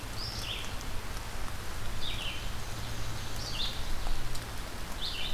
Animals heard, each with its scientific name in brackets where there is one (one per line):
Red-eyed Vireo (Vireo olivaceus)
Black-and-white Warbler (Mniotilta varia)